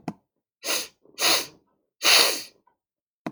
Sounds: Sniff